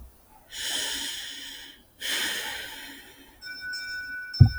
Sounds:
Sigh